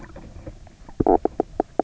{"label": "biophony, knock croak", "recorder": "SoundTrap 300"}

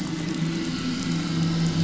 {"label": "anthrophony, boat engine", "recorder": "SoundTrap 500"}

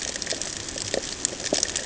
{"label": "ambient", "recorder": "HydroMoth"}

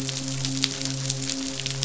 {"label": "biophony, midshipman", "recorder": "SoundTrap 500"}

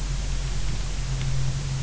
{"label": "anthrophony, boat engine", "recorder": "SoundTrap 300"}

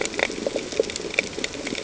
{"label": "ambient", "recorder": "HydroMoth"}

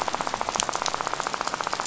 {"label": "biophony, rattle", "recorder": "SoundTrap 500"}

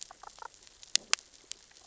{"label": "biophony, damselfish", "recorder": "SoundTrap 600 or HydroMoth"}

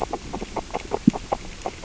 {"label": "biophony, grazing", "recorder": "SoundTrap 600 or HydroMoth"}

